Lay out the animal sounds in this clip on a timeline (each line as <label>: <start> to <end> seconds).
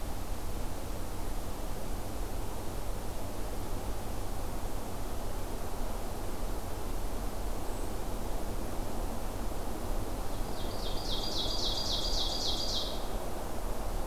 Ovenbird (Seiurus aurocapilla): 10.4 to 13.1 seconds